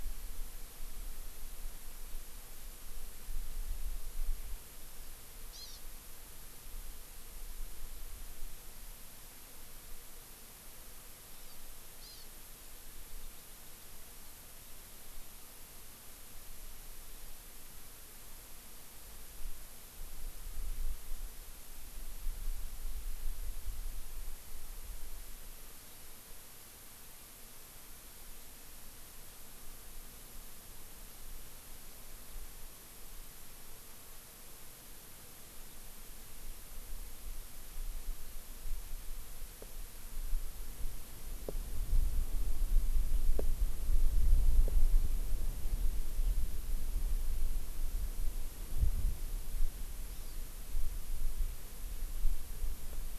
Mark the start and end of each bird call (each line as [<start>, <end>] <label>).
[4.91, 5.81] Hawaii Amakihi (Chlorodrepanis virens)
[11.31, 11.61] Hawaii Amakihi (Chlorodrepanis virens)
[12.01, 12.31] Hawaii Amakihi (Chlorodrepanis virens)
[25.81, 26.11] Hawaii Amakihi (Chlorodrepanis virens)
[50.11, 50.41] Hawaii Amakihi (Chlorodrepanis virens)